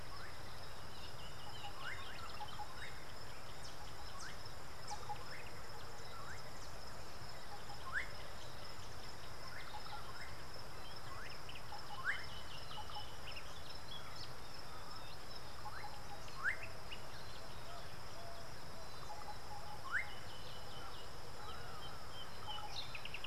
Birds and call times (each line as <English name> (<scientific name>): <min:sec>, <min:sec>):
Slate-colored Boubou (Laniarius funebris): 0:04.9, 0:07.9, 0:12.0, 0:19.9
Emerald-spotted Wood-Dove (Turtur chalcospilos): 0:18.2